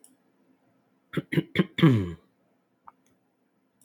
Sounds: Throat clearing